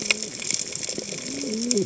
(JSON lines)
{"label": "biophony, cascading saw", "recorder": "HydroMoth"}